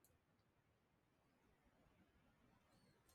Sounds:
Throat clearing